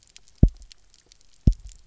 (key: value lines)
label: biophony, double pulse
recorder: SoundTrap 300